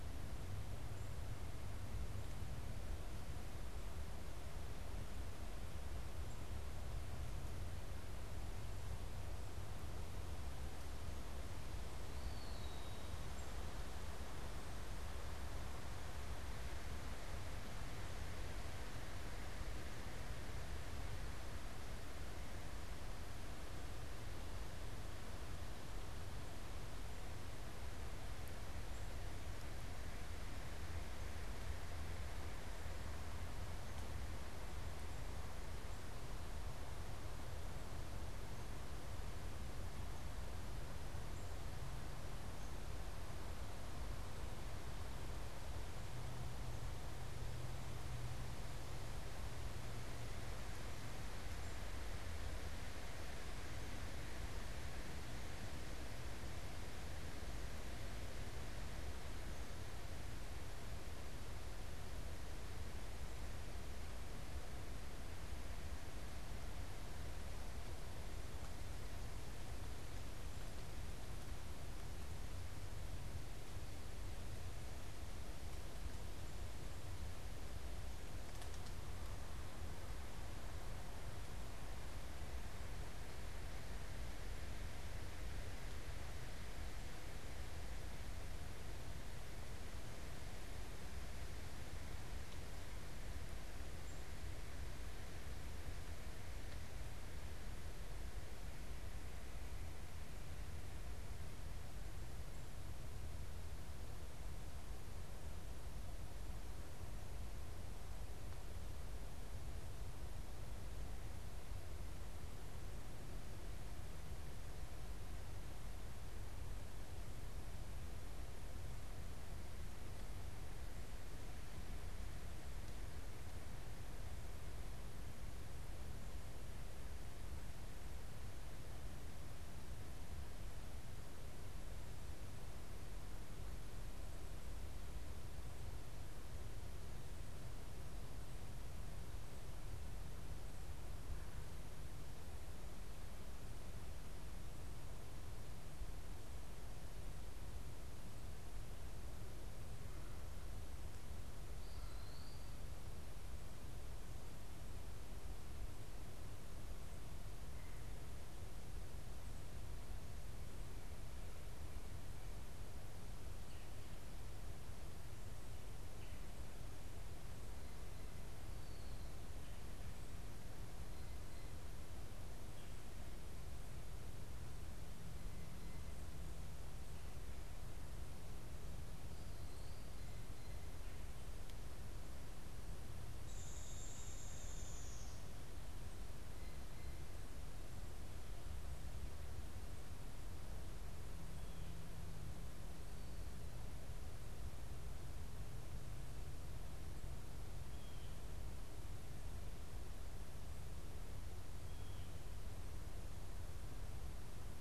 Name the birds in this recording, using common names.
Eastern Wood-Pewee, Downy Woodpecker